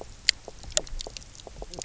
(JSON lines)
{"label": "biophony, knock croak", "recorder": "SoundTrap 300"}